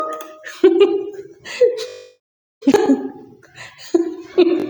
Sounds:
Laughter